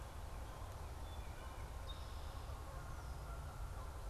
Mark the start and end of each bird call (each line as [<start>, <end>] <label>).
[0.00, 4.10] Canada Goose (Branta canadensis)
[0.94, 1.84] Wood Thrush (Hylocichla mustelina)